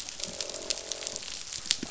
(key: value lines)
label: biophony
recorder: SoundTrap 500

label: biophony, croak
recorder: SoundTrap 500